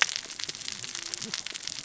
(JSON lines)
{"label": "biophony, cascading saw", "recorder": "SoundTrap 600 or HydroMoth"}